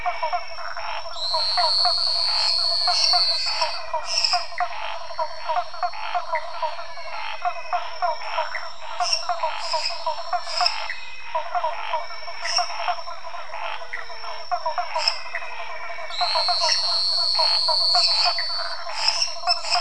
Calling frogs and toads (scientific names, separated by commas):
Physalaemus albonotatus, Scinax fuscovarius, Physalaemus nattereri, Phyllomedusa sauvagii, Elachistocleis matogrosso, Dendropsophus minutus